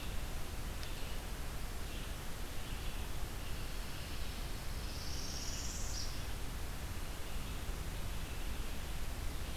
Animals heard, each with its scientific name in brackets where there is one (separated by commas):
Red-eyed Vireo (Vireo olivaceus), Northern Parula (Setophaga americana), Pine Warbler (Setophaga pinus)